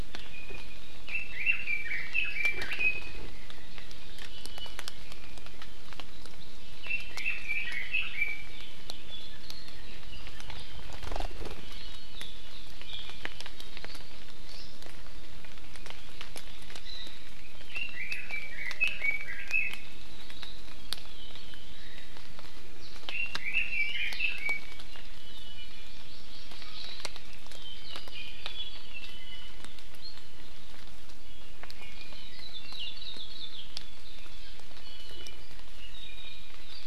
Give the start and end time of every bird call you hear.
0.3s-0.8s: Iiwi (Drepanis coccinea)
1.1s-3.2s: Red-billed Leiothrix (Leiothrix lutea)
4.3s-5.0s: Iiwi (Drepanis coccinea)
6.8s-8.6s: Red-billed Leiothrix (Leiothrix lutea)
11.6s-12.2s: Iiwi (Drepanis coccinea)
17.6s-20.1s: Red-billed Leiothrix (Leiothrix lutea)
23.1s-24.8s: Red-billed Leiothrix (Leiothrix lutea)
25.2s-26.1s: Iiwi (Drepanis coccinea)
25.9s-27.0s: Hawaii Amakihi (Chlorodrepanis virens)
28.1s-29.7s: Apapane (Himatione sanguinea)
32.3s-33.6s: Hawaii Akepa (Loxops coccineus)
34.7s-35.5s: Iiwi (Drepanis coccinea)
35.8s-36.6s: Iiwi (Drepanis coccinea)

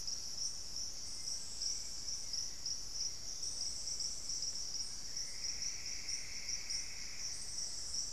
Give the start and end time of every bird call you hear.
4.7s-8.1s: Plumbeous Antbird (Myrmelastes hyperythrus)

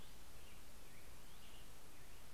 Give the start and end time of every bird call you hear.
0.0s-1.6s: Hutton's Vireo (Vireo huttoni)
0.0s-2.3s: American Robin (Turdus migratorius)

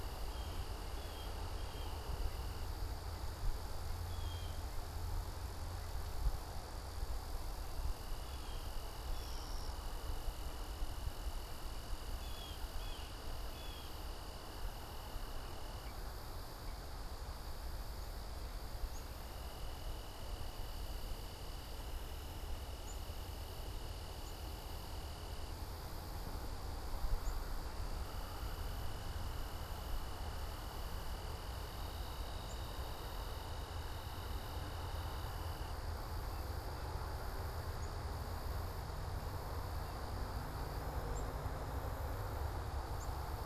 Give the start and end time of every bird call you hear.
0.0s-4.9s: Blue Jay (Cyanocitta cristata)
8.0s-14.2s: Blue Jay (Cyanocitta cristata)
18.7s-27.6s: Black-capped Chickadee (Poecile atricapillus)
32.4s-43.4s: Black-capped Chickadee (Poecile atricapillus)

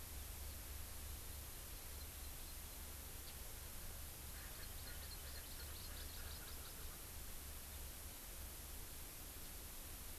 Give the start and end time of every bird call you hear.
4.3s-7.1s: Erckel's Francolin (Pternistis erckelii)
4.5s-6.8s: Hawaii Amakihi (Chlorodrepanis virens)

